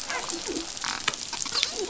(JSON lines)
{"label": "biophony, dolphin", "recorder": "SoundTrap 500"}